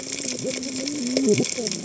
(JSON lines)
{"label": "biophony, cascading saw", "recorder": "HydroMoth"}